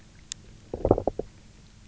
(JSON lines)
{"label": "biophony, low growl", "recorder": "SoundTrap 300"}